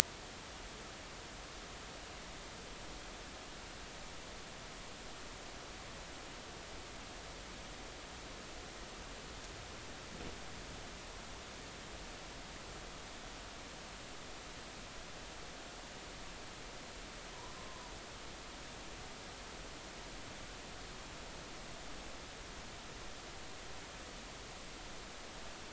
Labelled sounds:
17.3	17.9	humpback whale, 0.90 to 1.1 kHz

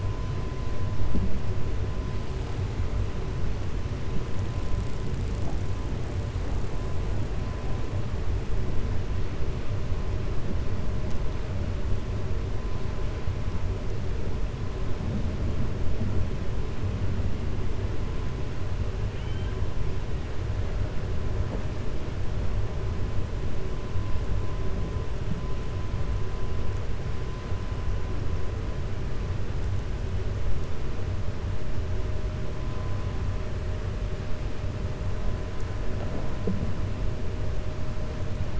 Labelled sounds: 19.1	19.6	killer whale, 1.5 to 3.2 kHz

